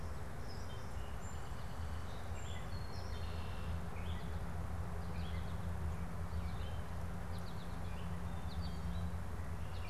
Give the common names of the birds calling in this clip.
Song Sparrow, Red-winged Blackbird, American Goldfinch